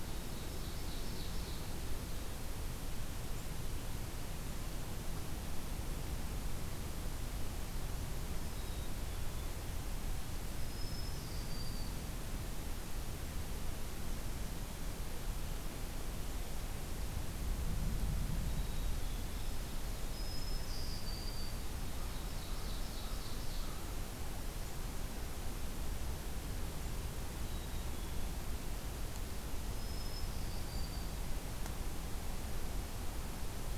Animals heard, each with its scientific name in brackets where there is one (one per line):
Black-capped Chickadee (Poecile atricapillus)
Black-throated Green Warbler (Setophaga virens)
Ovenbird (Seiurus aurocapilla)
American Crow (Corvus brachyrhynchos)